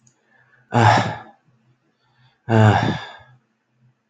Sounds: Sigh